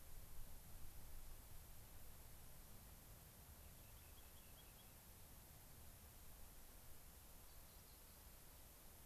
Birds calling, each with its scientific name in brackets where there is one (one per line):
Rock Wren (Salpinctes obsoletus)